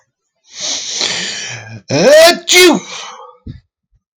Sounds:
Sneeze